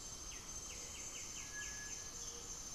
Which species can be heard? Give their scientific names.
Pachyramphus polychopterus, Crypturellus cinereus, Leptotila rufaxilla